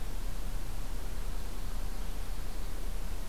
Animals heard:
forest ambience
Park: Acadia National Park